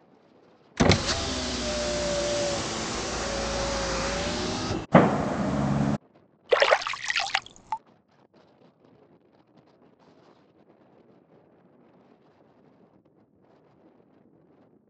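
At 0.76 seconds, a car can be heard. Then, at 4.91 seconds, you can hear fireworks. Finally, at 6.49 seconds, splashing is heard.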